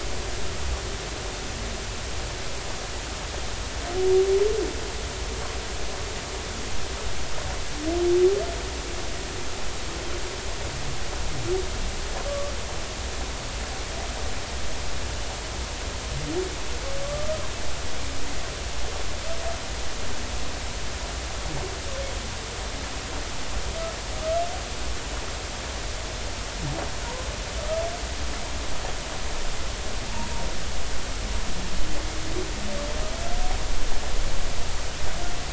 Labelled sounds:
12.3	12.5	humpback whale, 1.1 to 1.2 kHz
17.0	17.4	humpback whale, 1.1 to 1.3 kHz

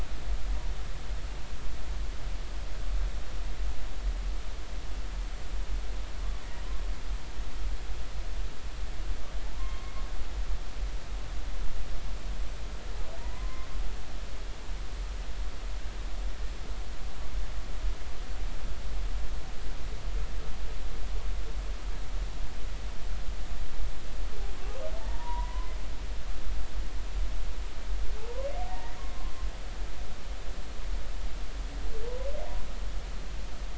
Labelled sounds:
9.4	9.9	humpback whale, 0.80 to 1.1 kHz
13.3	13.7	humpback whale, 0.93 to 1.1 kHz
25.0	25.8	humpback whale, 0.83 to 1.1 kHz
28.2	29.0	humpback whale, 0.80 to 2.0 kHz

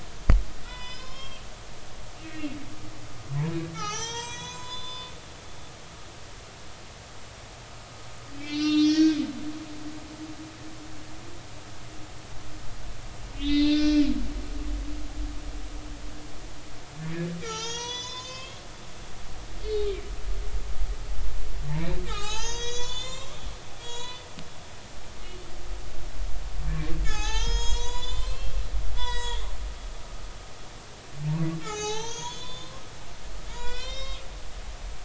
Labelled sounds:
0.3	1.4	humpback whale, 0.93 to 5.4 kHz
3.7	5.1	humpback whale, 0.80 to 7.7 kHz
8.4	10.1	humpback whale, 1.2 to 6.7 kHz
13.4	14.8	humpback whale, 1.4 to 4.3 kHz
17.0	18.6	humpback whale, 0.83 to 7.2 kHz
19.6	19.9	humpback whale, 4.1 to 4.4 kHz
21.7	23.4	humpback whale, 0.80 to 7.6 kHz
23.8	24.3	humpback whale, 0.90 to 7.0 kHz
27.0	29.4	humpback whale, 0.80 to 7.9 kHz
31.6	34.2	humpback whale, 0.80 to 7.7 kHz

